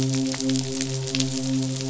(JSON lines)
{"label": "biophony, midshipman", "recorder": "SoundTrap 500"}